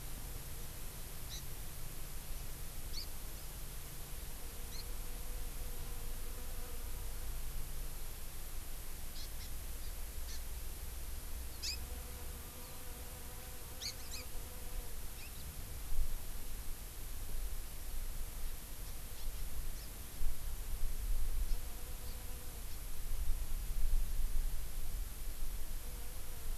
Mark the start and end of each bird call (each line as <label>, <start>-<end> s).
Hawaii Amakihi (Chlorodrepanis virens), 1.3-1.4 s
Hawaii Amakihi (Chlorodrepanis virens), 2.9-3.1 s
Hawaii Amakihi (Chlorodrepanis virens), 4.7-4.8 s
Hawaii Amakihi (Chlorodrepanis virens), 9.1-9.5 s
Hawaii Amakihi (Chlorodrepanis virens), 9.8-9.9 s
Hawaii Amakihi (Chlorodrepanis virens), 10.3-10.4 s
House Finch (Haemorhous mexicanus), 11.5-11.8 s
Hawaii Amakihi (Chlorodrepanis virens), 13.8-14.3 s
Hawaii Amakihi (Chlorodrepanis virens), 19.2-19.3 s
Hawaii Amakihi (Chlorodrepanis virens), 19.7-19.9 s
Hawaii Amakihi (Chlorodrepanis virens), 21.4-21.6 s